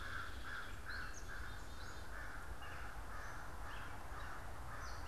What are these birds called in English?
Hairy Woodpecker, American Crow, Black-capped Chickadee, Gray Catbird